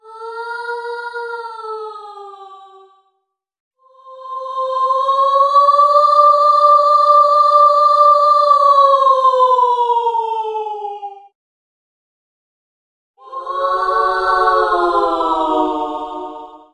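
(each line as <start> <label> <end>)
0.0 A spooky ghost-like sound plays. 3.1
4.1 A loud spooky sound resembling several ghosts. 11.3
13.3 A loud, spooky sound resembling several ghosts. 16.7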